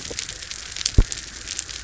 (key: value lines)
label: biophony
recorder: SoundTrap 300